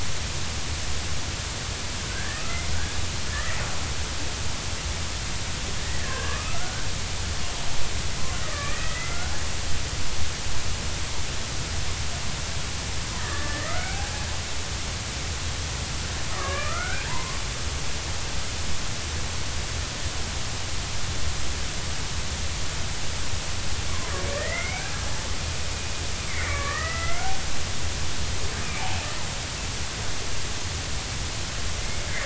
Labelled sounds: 2.0	3.0	killer whale, Bigg's (transient), 1.2 to 2.2 kHz
3.3	3.6	killer whale, Bigg's (transient), 1.7 to 2.0 kHz
6.0	6.9	killer whale, Bigg's (transient), 0.99 to 1.9 kHz
8.4	9.3	killer whale, Bigg's (transient), 1.1 to 2.1 kHz
13.2	14.0	killer whale, Bigg's (transient), 1.1 to 2.1 kHz
16.4	17.4	killer whale, Bigg's (transient), 0.86 to 2.6 kHz
24.3	24.9	killer whale, Bigg's (transient), 1.7 to 2.5 kHz
26.3	27.3	killer whale, Bigg's (transient), 1.1 to 2.5 kHz
28.6	28.9	killer whale, Bigg's (transient), 2.2 to 2.5 kHz
31.8	32.1	killer whale, Bigg's (transient), 2.0 to 2.3 kHz

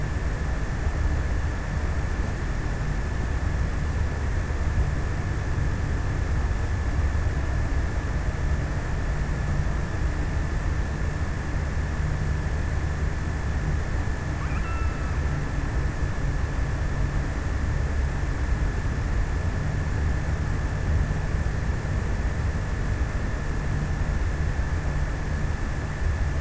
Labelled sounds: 14.0	15.8	killer whale, offshore, 1.0 to 3.1 kHz

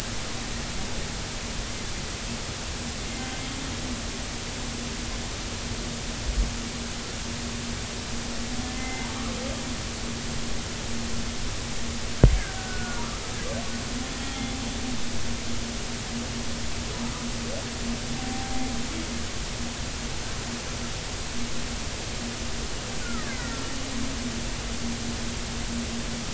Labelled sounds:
4.0	4.5	humpback whale, 2.0 to 2.2 kHz
8.7	9.1	humpback whale, 2.0 to 2.1 kHz
12.6	13.0	killer whale, Bigg's (transient), 1.4 to 1.6 kHz
18.2	18.7	humpback whale, 0.80 to 0.90 kHz
23.3	23.7	killer whale, Bigg's (transient), 1.3 to 2.1 kHz
24.0	24.3	killer whale, Bigg's (transient), 1.1 to 1.5 kHz

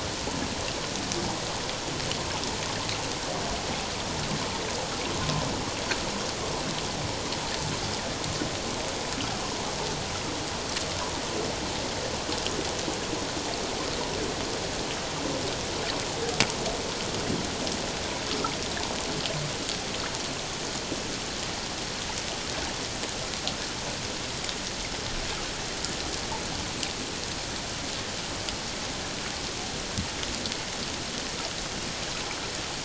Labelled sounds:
5.2	5.5	humpback whale, 0.97 to 1.1 kHz

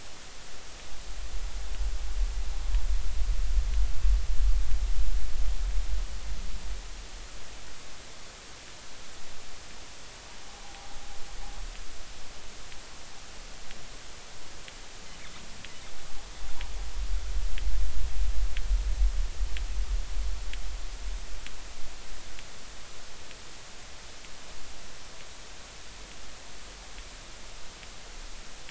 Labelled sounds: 10.6	10.9	humpback whale, 0.80 to 0.86 kHz

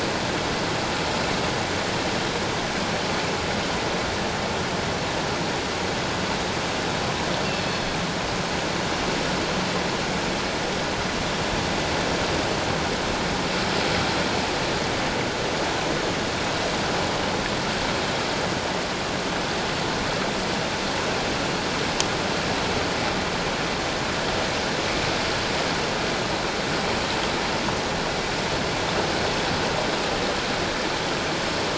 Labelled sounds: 7.4	7.9	killer whale, northern resident, G clan, 2.6 to 4.4 kHz

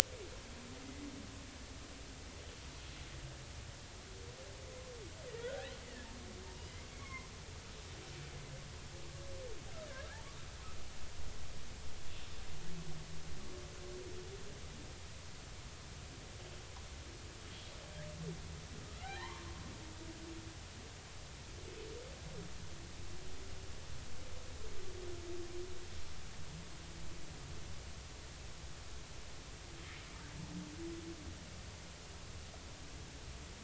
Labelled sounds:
5.3	5.7	humpback whale, 1.3 to 2.1 kHz
6.9	7.3	humpback whale, 0.96 to 2.3 kHz
18.8	19.4	humpback whale, 0.80 to 1.7 kHz

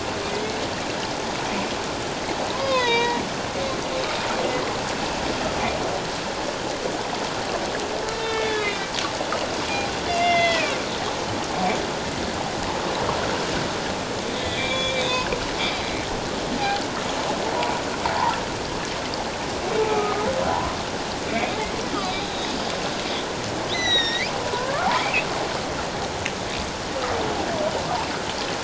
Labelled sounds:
0.3	0.6	humpback whale, 2.0 to 2.3 kHz
2.5	3.2	humpback whale, 0.88 to 6.5 kHz
8.1	8.9	humpback whale, 1.6 to 3.9 kHz
10.1	10.7	humpback whale, 1.9 to 3.6 kHz
14.3	15.3	humpback whale, 1.9 to 3.9 kHz
19.9	20.3	humpback whale, 1.2 to 1.3 kHz
21.3	21.5	humpback whale, 2.0 to 2.5 kHz
22.2	22.5	humpback whale, 3.6 to 4.1 kHz
23.7	25.3	humpback whale, 0.91 to 6.2 kHz

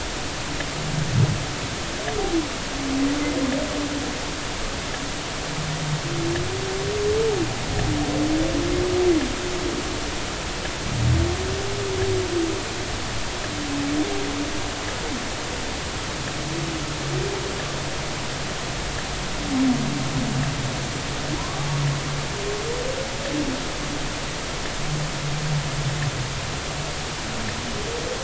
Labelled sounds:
21.4	21.7	humpback whale, 0.93 to 1.2 kHz

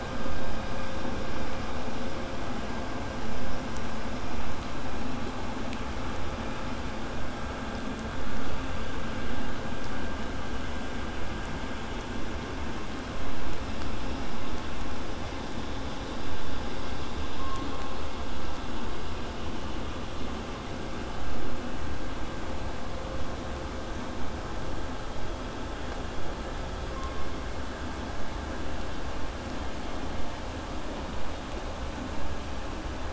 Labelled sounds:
0.3	1.8	killer whale, southern resident, 2.2 to 5.1 kHz
28.1	33.1	vessel noise, 0 to 8.0 kHz

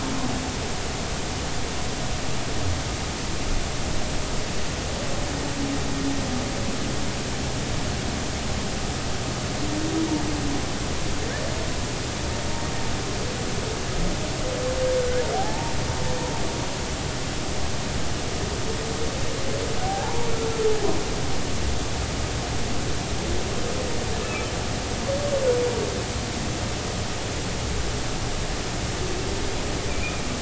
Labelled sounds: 15.3	15.8	humpback whale, 0.80 to 0.99 kHz
19.8	20.3	humpback whale, 0.80 to 1.0 kHz
24.2	24.5	humpback whale, 1.2 to 2.7 kHz
29.9	30.2	humpback whale, 2.3 to 2.5 kHz

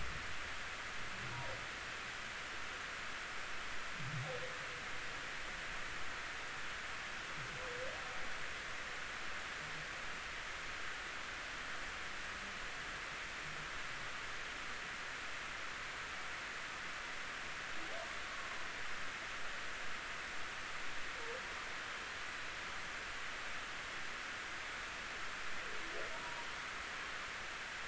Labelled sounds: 26.2	26.5	humpback whale, 0.90 to 0.99 kHz

